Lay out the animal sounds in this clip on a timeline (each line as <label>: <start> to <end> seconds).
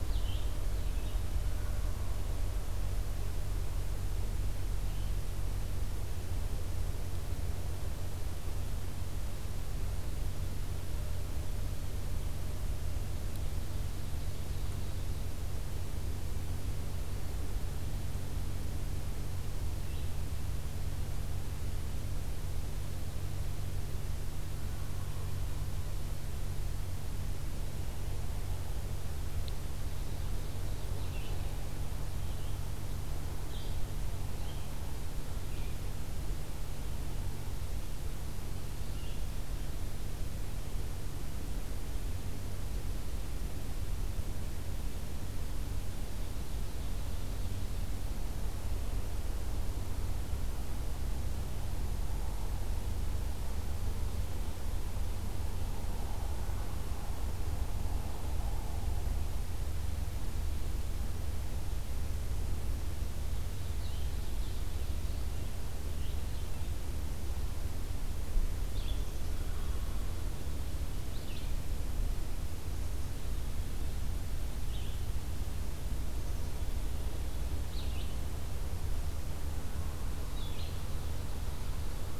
Red-eyed Vireo (Vireo olivaceus): 0.0 to 1.3 seconds
Wild Turkey (Meleagris gallopavo): 1.3 to 2.3 seconds
Red-eyed Vireo (Vireo olivaceus): 4.8 to 5.2 seconds
Ovenbird (Seiurus aurocapilla): 13.2 to 15.4 seconds
Red-eyed Vireo (Vireo olivaceus): 19.7 to 20.1 seconds
Ovenbird (Seiurus aurocapilla): 29.7 to 31.6 seconds
Blue-headed Vireo (Vireo solitarius): 30.9 to 39.2 seconds
Ovenbird (Seiurus aurocapilla): 45.7 to 48.0 seconds
Blue-headed Vireo (Vireo solitarius): 63.4 to 78.2 seconds
Black-capped Chickadee (Poecile atricapillus): 69.0 to 70.2 seconds
Ovenbird (Seiurus aurocapilla): 80.1 to 82.2 seconds
Blue-headed Vireo (Vireo solitarius): 80.3 to 80.8 seconds